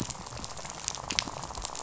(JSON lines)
{"label": "biophony, rattle", "recorder": "SoundTrap 500"}